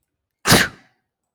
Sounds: Sneeze